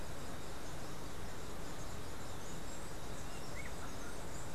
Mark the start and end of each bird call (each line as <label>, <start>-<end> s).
Black-capped Tanager (Stilpnia heinei), 0.0-4.5 s
Whiskered Wren (Pheugopedius mystacalis), 3.1-4.4 s